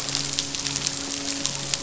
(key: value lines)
label: biophony, midshipman
recorder: SoundTrap 500